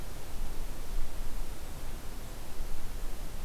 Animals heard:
forest ambience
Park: Hubbard Brook Experimental Forest